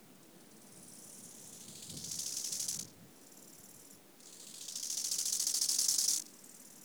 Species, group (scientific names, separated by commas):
Chorthippus eisentrauti, Orthoptera